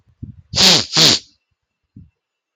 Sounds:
Sniff